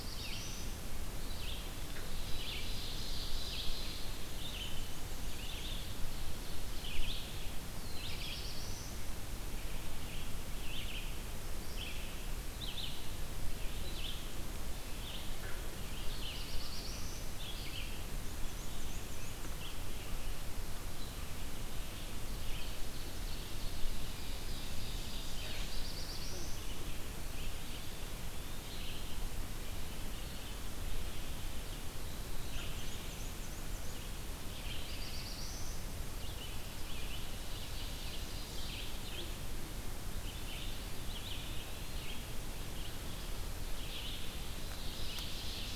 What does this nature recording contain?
Black-throated Blue Warbler, Red-eyed Vireo, Ovenbird, Black-and-white Warbler, Eastern Wood-Pewee